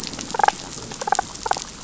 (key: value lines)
label: biophony, damselfish
recorder: SoundTrap 500